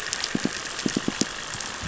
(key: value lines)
label: biophony, pulse
recorder: SoundTrap 500

label: anthrophony, boat engine
recorder: SoundTrap 500